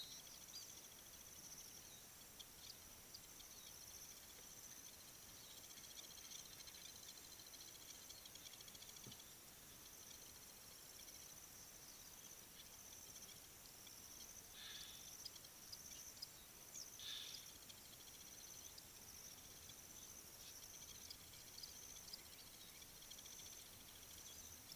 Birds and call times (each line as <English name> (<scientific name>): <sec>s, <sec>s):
Blacksmith Lapwing (Vanellus armatus): 7.9s, 22.0s
Egyptian Goose (Alopochen aegyptiaca): 17.1s